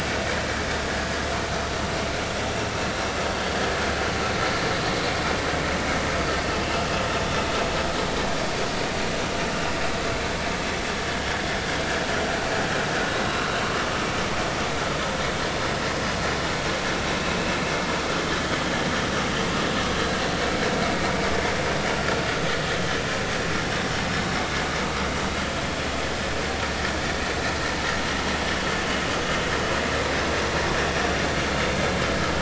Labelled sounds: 6.6	6.9	vessel noise, 2.6 to 2.8 kHz

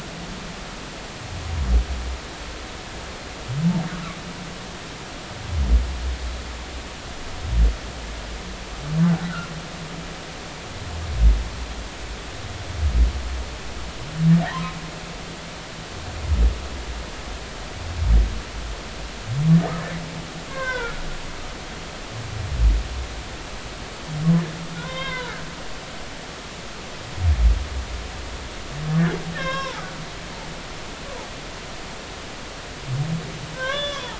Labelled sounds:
14.5	14.8	humpback whale, 0.86 to 1.1 kHz
20.5	21.0	humpback whale, 0.90 to 3.8 kHz
24.7	25.4	humpback whale, 0.90 to 3.8 kHz
29.3	29.8	humpback whale, 0.80 to 5.5 kHz
33.5	34.1	humpback whale, 0.83 to 3.6 kHz

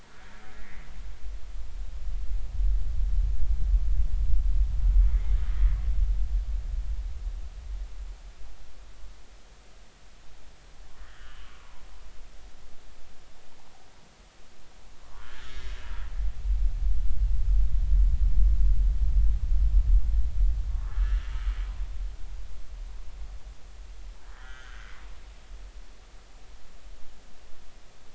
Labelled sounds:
0.5	0.9	humpback whale, 1.8 to 2.3 kHz
5.1	5.3	humpback whale, 1.9 to 2.3 kHz
11.0	11.8	humpback whale, 0.90 to 3.2 kHz
15.2	15.9	humpback whale, 1.3 to 1.9 kHz
20.7	21.2	humpback whale, 1.0 to 1.8 kHz
24.3	24.9	humpback whale, 1.3 to 3.3 kHz

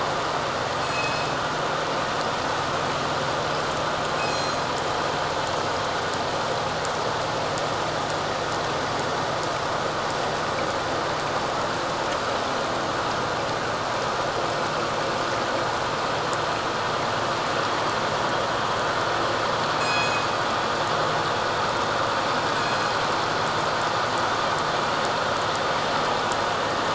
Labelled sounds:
0.8	1.3	killer whale, northern resident, G clan, 2.5 to 5.2 kHz
4.2	4.6	killer whale, northern resident, G clan, 4.1 to 6.7 kHz
19.8	20.3	killer whale, northern resident, G clan, 2.4 to 6.8 kHz
22.6	22.9	killer whale, northern resident, G clan, 2.3 to 4.3 kHz

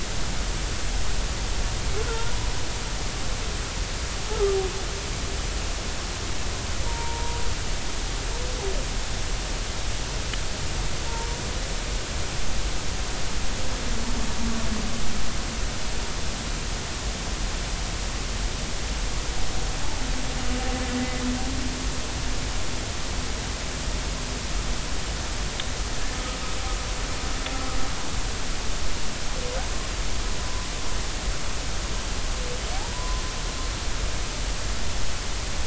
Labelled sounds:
2.0	2.3	humpback whale, 1.3 to 1.5 kHz
6.8	7.4	humpback whale, 0.86 to 0.99 kHz
32.9	33.2	humpback whale, 0.93 to 1.1 kHz

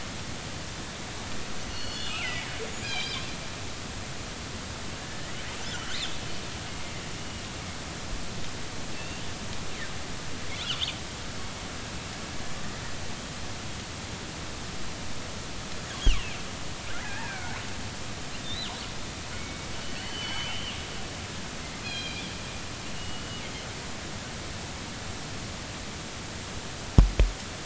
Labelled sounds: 1.7	2.5	killer whale, northern resident, G clan, GG subclan, call N23ii, 1.2 to 4.5 kHz
2.8	3.3	killer whale, northern resident, G clan, call N24ii, 2.3 to 5.0 kHz
5.0	5.3	killer whale, northern resident, R clan, call N32ii, 1.6 to 2.0 kHz
7.2	7.4	killer whale, northern resident, G clan, 2.8 to 2.9 kHz
8.9	9.2	killer whale, northern resident, G clan, 2.6 to 2.8 kHz
10.5	10.8	killer whale, northern resident, G clan, 2.7 to 4.2 kHz
17.0	17.6	killer whale, northern resident, R clan, call N33, 1.4 to 2.6 kHz
18.4	18.7	killer whale, northern resident, G clan, GG subclan, call N28, 3.5 to 4.1 kHz
19.3	19.7	killer whale, northern resident, G clan, call N24ii, 2.1 to 2.3 kHz
19.9	20.8	killer whale, northern resident, G clan, 2.0 to 4.6 kHz
21.8	22.2	killer whale, northern resident, G clan, call N24ii, 2.3 to 5.0 kHz
23.0	23.2	killer whale, northern resident, G clan, GG subclan, call N23ii, 2.8 to 3.0 kHz

